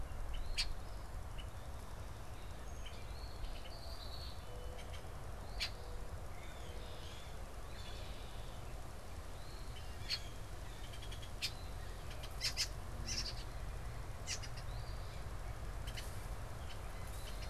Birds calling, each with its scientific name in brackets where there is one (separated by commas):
Red-winged Blackbird (Agelaius phoeniceus), Eastern Phoebe (Sayornis phoebe), Mourning Dove (Zenaida macroura)